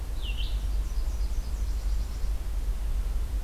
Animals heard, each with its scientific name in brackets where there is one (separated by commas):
Nashville Warbler (Leiothlypis ruficapilla), Red-eyed Vireo (Vireo olivaceus)